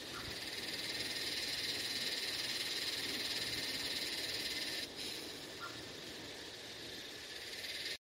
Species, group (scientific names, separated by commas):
Psaltoda harrisii, Cicadidae